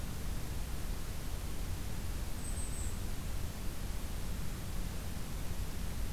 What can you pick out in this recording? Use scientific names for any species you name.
Regulus satrapa